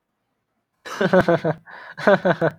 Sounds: Laughter